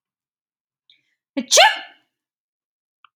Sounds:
Sneeze